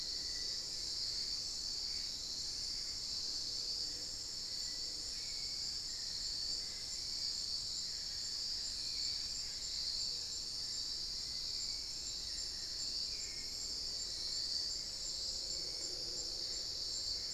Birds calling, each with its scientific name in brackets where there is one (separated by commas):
Hauxwell's Thrush (Turdus hauxwelli), Black-faced Antthrush (Formicarius analis), unidentified bird